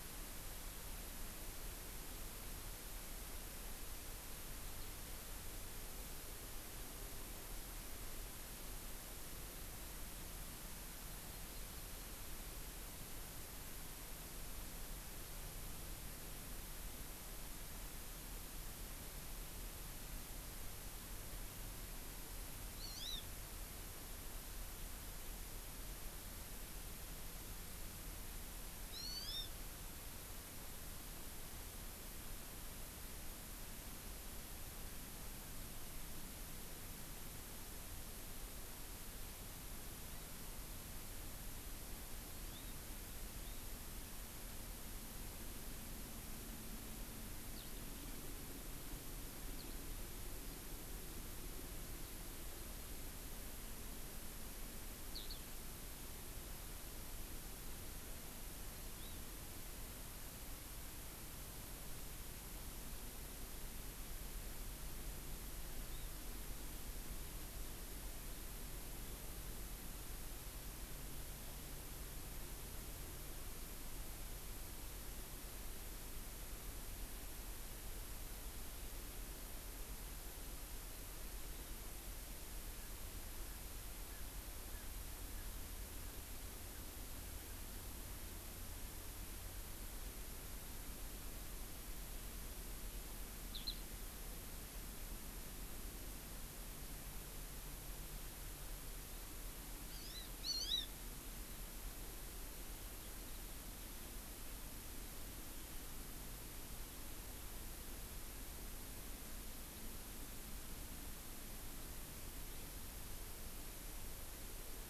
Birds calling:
Hawaii Amakihi (Chlorodrepanis virens)
Eurasian Skylark (Alauda arvensis)

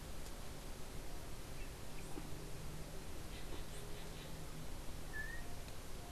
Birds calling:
Yellow-backed Oriole (Icterus chrysater)
Green Jay (Cyanocorax yncas)

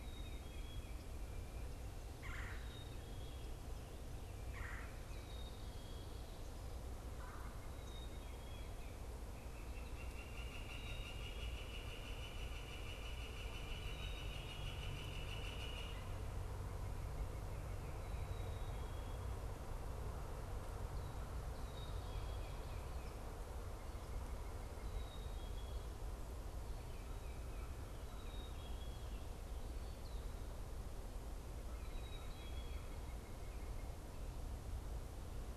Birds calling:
Black-capped Chickadee (Poecile atricapillus)
Red-bellied Woodpecker (Melanerpes carolinus)
Northern Flicker (Colaptes auratus)

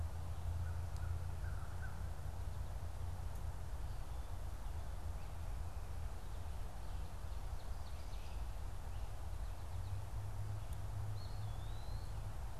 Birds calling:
Eastern Wood-Pewee (Contopus virens)
Ovenbird (Seiurus aurocapilla)
American Crow (Corvus brachyrhynchos)

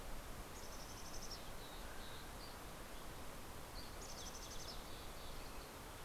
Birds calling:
Dusky Flycatcher (Empidonax oberholseri)
Mountain Chickadee (Poecile gambeli)
Mountain Quail (Oreortyx pictus)

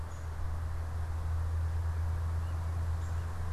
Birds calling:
Downy Woodpecker (Dryobates pubescens)

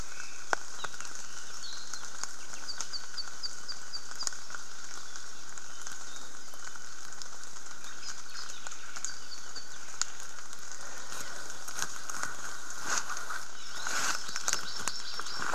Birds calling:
Apapane (Himatione sanguinea)
Hawaii Amakihi (Chlorodrepanis virens)

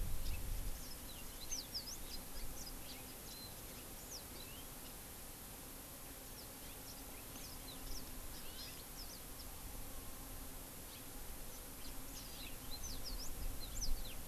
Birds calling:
Red-billed Leiothrix (Leiothrix lutea)
Warbling White-eye (Zosterops japonicus)
House Finch (Haemorhous mexicanus)
Yellow-fronted Canary (Crithagra mozambica)
Hawaii Amakihi (Chlorodrepanis virens)

